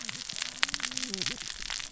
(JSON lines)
{"label": "biophony, cascading saw", "recorder": "SoundTrap 600 or HydroMoth"}